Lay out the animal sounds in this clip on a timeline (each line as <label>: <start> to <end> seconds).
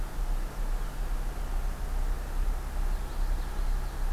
Common Yellowthroat (Geothlypis trichas): 2.8 to 4.1 seconds